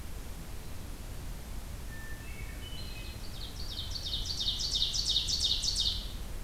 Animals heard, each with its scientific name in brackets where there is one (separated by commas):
Hermit Thrush (Catharus guttatus), Ovenbird (Seiurus aurocapilla)